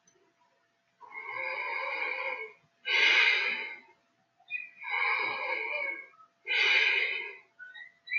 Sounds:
Sigh